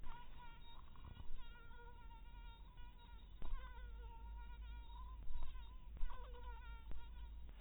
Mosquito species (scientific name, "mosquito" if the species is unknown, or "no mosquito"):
mosquito